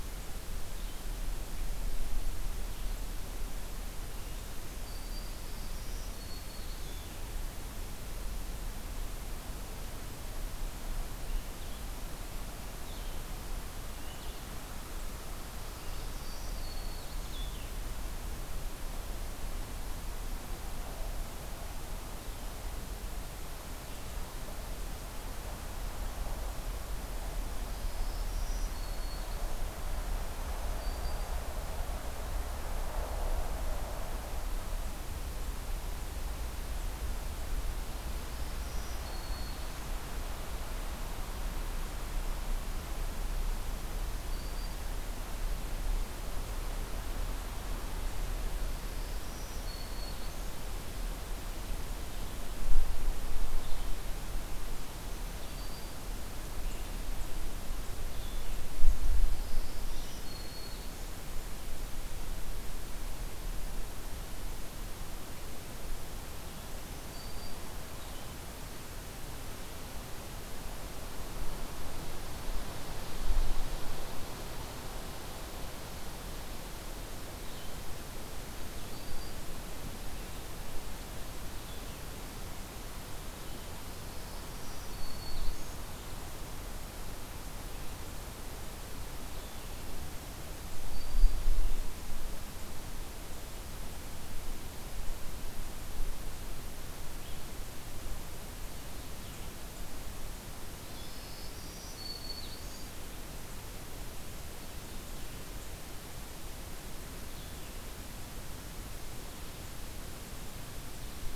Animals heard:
Blue-headed Vireo (Vireo solitarius), Black-throated Green Warbler (Setophaga virens)

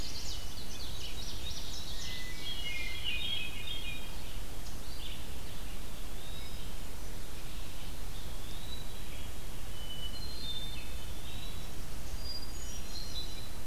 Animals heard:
Indigo Bunting (Passerina cyanea), Hermit Thrush (Catharus guttatus), Eastern Wood-Pewee (Contopus virens), Red-eyed Vireo (Vireo olivaceus)

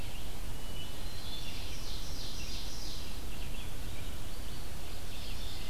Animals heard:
Ovenbird (Seiurus aurocapilla), Red-eyed Vireo (Vireo olivaceus), Hermit Thrush (Catharus guttatus)

